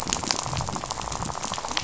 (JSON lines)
{"label": "biophony, rattle", "recorder": "SoundTrap 500"}